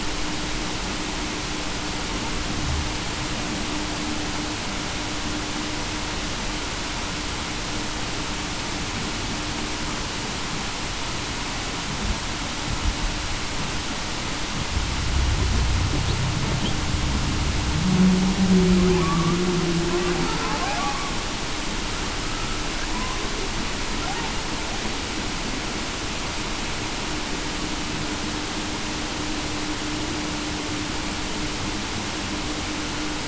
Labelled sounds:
17.8	19.1	humpback whale, 0.19 to 0.40 kHz
20.6	21.0	humpback whale, 0.56 to 0.87 kHz

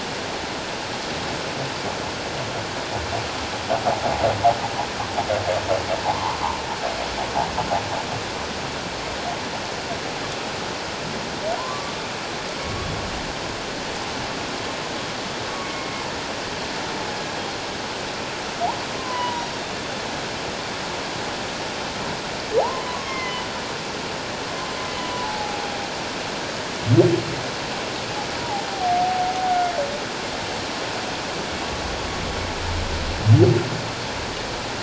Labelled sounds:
6.0	6.4	humpback whale, 0.78 to 1.2 kHz
11.6	12.9	humpback whale, 0.91 to 1.2 kHz
15.6	15.9	humpback whale, 2.1 to 2.2 kHz
17.1	17.4	humpback whale, 1.6 to 1.7 kHz
19.0	19.5	humpback whale, 0.91 to 1.1 kHz
22.6	23.4	humpback whale, 0.78 to 2.2 kHz
24.9	25.6	humpback whale, 0.78 to 3.1 kHz
28.7	29.3	humpback whale, 0.78 to 0.81 kHz

